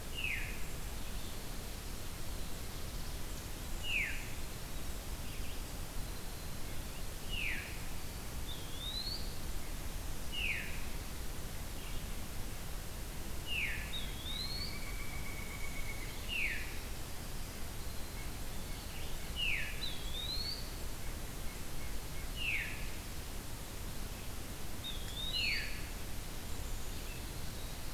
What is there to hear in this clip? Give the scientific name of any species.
Catharus fuscescens, Poecile atricapillus, Contopus virens, Dryocopus pileatus, Sitta carolinensis